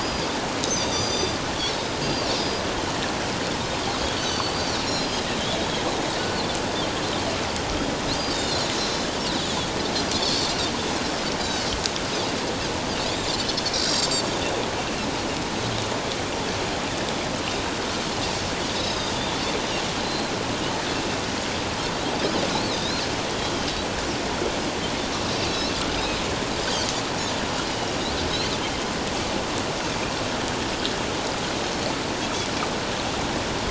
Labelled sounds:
0.0	1.4	Pacific white-sided dolphin, 3.5 to 6.2 kHz
2.0	2.6	Pacific white-sided dolphin, 4.5 to 5.0 kHz
3.9	5.3	Pacific white-sided dolphin, 4.2 to 6.1 kHz
8.1	8.7	Pacific white-sided dolphin, 3.4 to 4.9 kHz
10.1	10.5	Pacific white-sided dolphin, 4.1 to 4.7 kHz
13.7	14.1	Pacific white-sided dolphin, 7.3 to 7.6 kHz
18.7	19.1	Pacific white-sided dolphin, 3.6 to 5.3 kHz
20.0	20.3	Pacific white-sided dolphin, 4.0 to 4.3 kHz
22.7	23.0	Pacific white-sided dolphin, 3.6 to 4.3 kHz
23.3	23.7	Pacific white-sided dolphin, 3.0 to 3.4 kHz
25.5	26.2	Pacific white-sided dolphin, 3.6 to 4.3 kHz
31.7	31.9	Pacific white-sided dolphin, 4.2 to 4.5 kHz

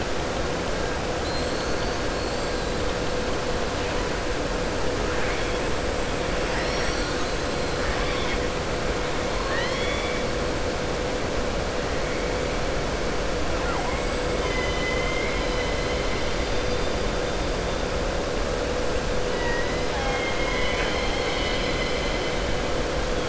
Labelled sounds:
1.1	2.0	killer whale, southern resident, 3.2 to 4.6 kHz
7.8	8.4	killer whale, southern resident, 1.1 to 5.4 kHz
9.3	10.2	killer whale, southern resident, 1.0 to 5.6 kHz
14.3	16.1	killer whale, southern resident, 1.0 to 4.1 kHz

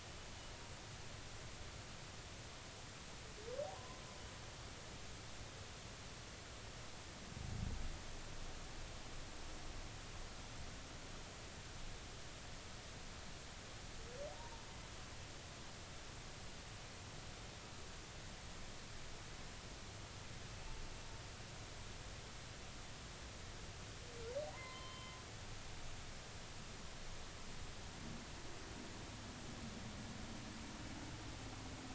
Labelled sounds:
3.7	4.0	humpback whale, 0.80 to 1.1 kHz
14.3	14.7	humpback whale, 0.86 to 1.1 kHz
24.5	25.2	humpback whale, 0.90 to 3.2 kHz

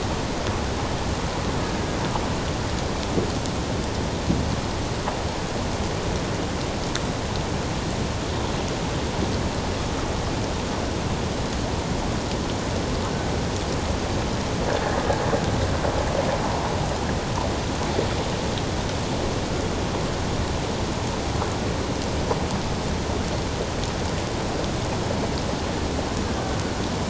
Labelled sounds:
26.2	26.5	killer whale, Bigg's (transient), 1.5 to 1.7 kHz

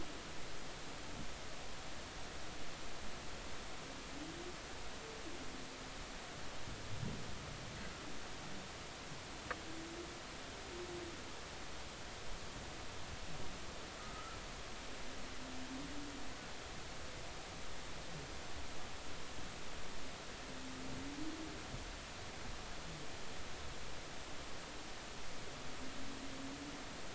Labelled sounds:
14.0	14.4	humpback whale, 1.2 to 1.4 kHz

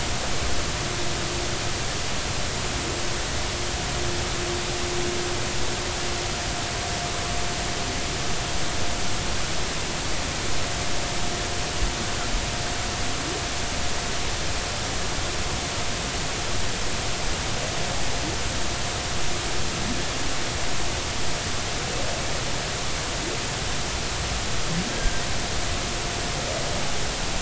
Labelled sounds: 24.9	25.2	humpback whale, 1.5 to 1.7 kHz

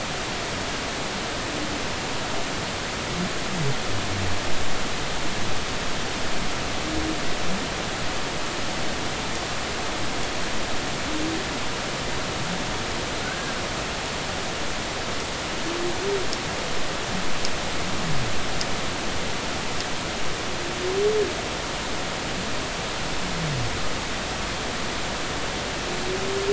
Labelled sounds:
13.2	13.5	humpback whale, 1.4 to 1.7 kHz

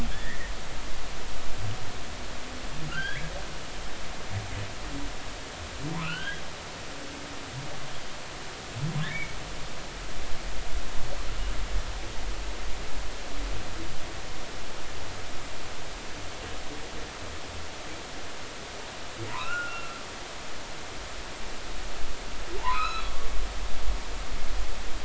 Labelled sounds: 0.1	0.5	humpback whale, 1.6 to 2.1 kHz
2.9	3.2	humpback whale, 1.3 to 3.5 kHz
6.0	6.4	humpback whale, 1.2 to 3.4 kHz
9.1	9.3	humpback whale, 2.1 to 2.4 kHz
19.3	20.0	humpback whale, 0.90 to 2.9 kHz
22.6	23.3	humpback whale, 0.83 to 4.1 kHz

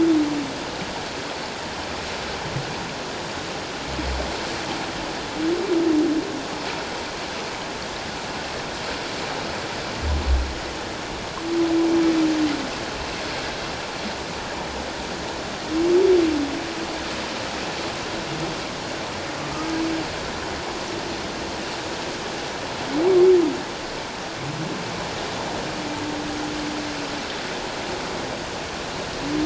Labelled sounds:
19.4	19.7	humpback whale, 1.1 to 1.3 kHz

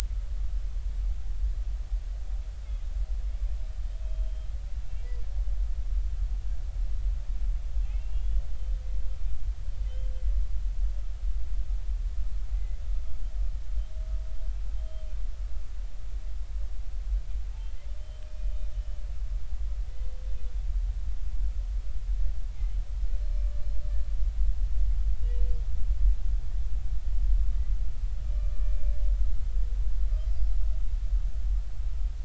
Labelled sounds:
4.0	4.5	humpback whale, 3.1 to 3.2 kHz
4.8	5.1	humpback whale, 2.7 to 2.8 kHz
7.8	8.4	humpback whale, 2.4 to 3.5 kHz
9.9	10.1	humpback whale, 3.0 to 3.3 kHz
12.6	12.8	humpback whale, 1.9 to 2.1 kHz
14.7	15.0	humpback whale, 3.1 to 3.2 kHz
18.2	19.0	humpback whale, 2.4 to 3.7 kHz
19.9	20.2	humpback whale, 2.0 to 2.1 kHz
22.5	22.8	humpback whale, 2.0 to 2.3 kHz
23.6	23.8	humpback whale, 4.1 to 4.2 kHz
28.2	28.7	humpback whale, 1.1 to 2.4 kHz

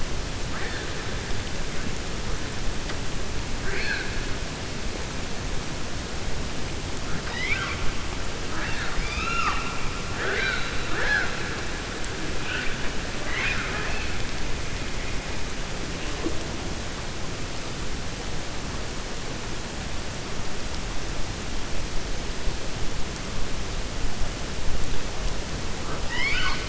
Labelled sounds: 8.4	9.7	killer whale, 0.77 to 6.9 kHz
26.0	26.6	killer whale, 0.95 to 5.3 kHz

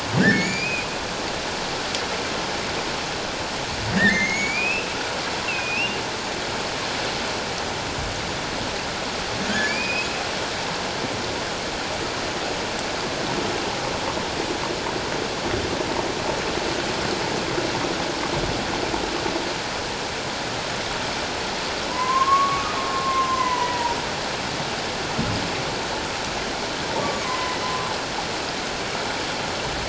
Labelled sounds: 0.2	0.9	humpback whale, 1.4 to 7.1 kHz
3.9	4.9	humpback whale, 1.6 to 7.0 kHz
5.5	6.0	humpback whale, 2.4 to 2.9 kHz
9.5	10.1	humpback whale, 1.5 to 2.8 kHz
21.9	24.0	humpback whale, 0.88 to 2.1 kHz
27.2	27.6	humpback whale, 0.97 to 1.1 kHz

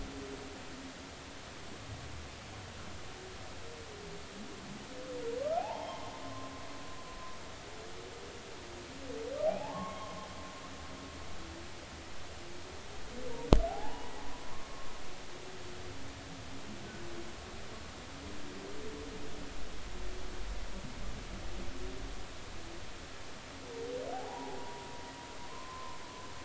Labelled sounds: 5.6	6.5	humpback whale, 0.80 to 3.3 kHz
10.5	11.2	humpback whale, 0.80 to 1.2 kHz
13.7	14.1	humpback whale, 0.80 to 1.0 kHz
24.1	24.9	humpback whale, 0.80 to 1.0 kHz
25.5	26.0	humpback whale, 0.90 to 1.1 kHz

